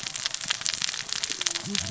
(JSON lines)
{"label": "biophony, cascading saw", "recorder": "SoundTrap 600 or HydroMoth"}